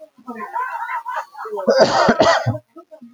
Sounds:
Cough